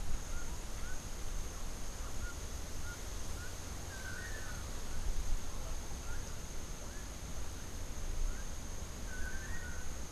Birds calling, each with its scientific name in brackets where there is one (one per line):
Melodious Blackbird (Dives dives)
Long-tailed Manakin (Chiroxiphia linearis)